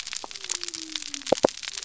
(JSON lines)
{"label": "biophony", "recorder": "SoundTrap 300"}